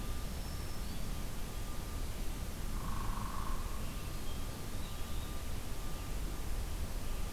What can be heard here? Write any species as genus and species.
Setophaga virens, Dryobates villosus, Contopus virens